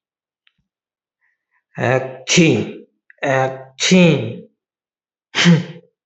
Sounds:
Sneeze